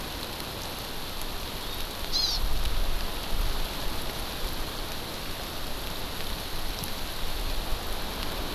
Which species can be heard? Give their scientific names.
Chlorodrepanis virens